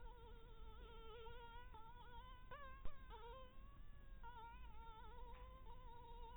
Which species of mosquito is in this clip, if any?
Anopheles dirus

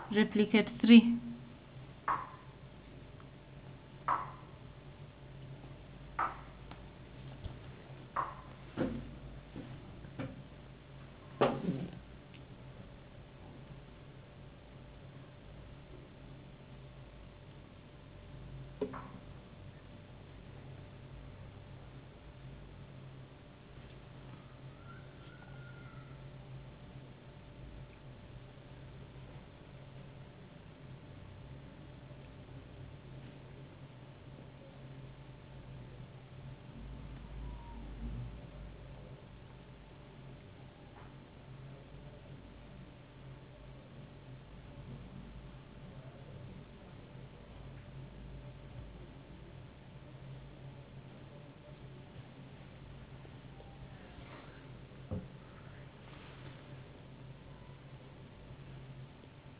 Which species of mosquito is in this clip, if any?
no mosquito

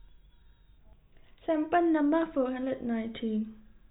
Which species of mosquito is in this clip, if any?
no mosquito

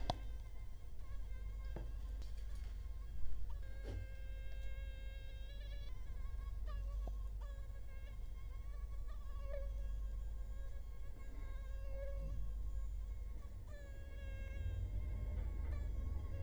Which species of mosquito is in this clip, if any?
Culex quinquefasciatus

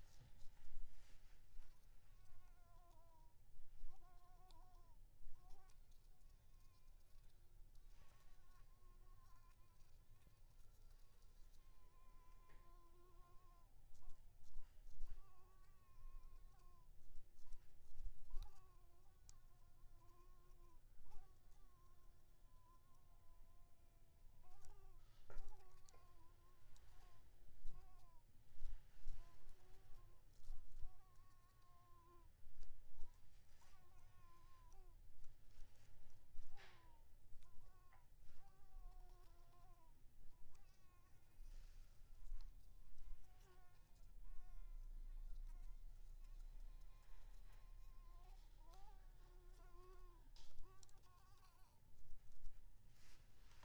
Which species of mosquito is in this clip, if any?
Anopheles coustani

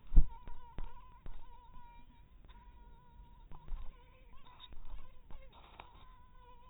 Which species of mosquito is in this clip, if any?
mosquito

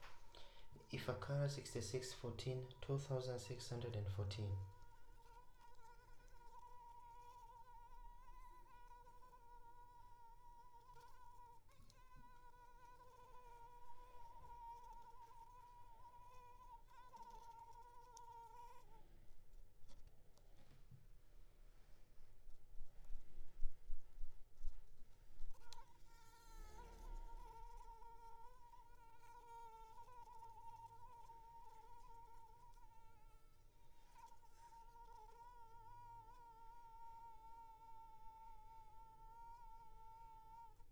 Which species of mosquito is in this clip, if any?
Anopheles arabiensis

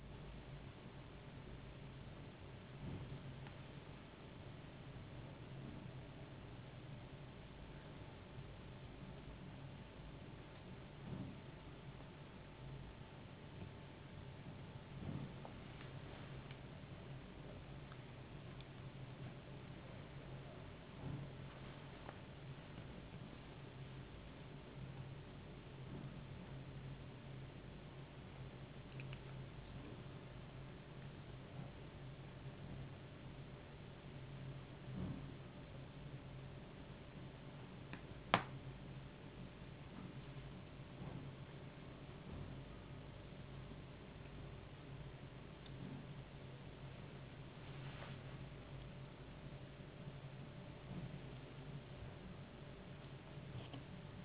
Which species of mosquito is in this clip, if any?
no mosquito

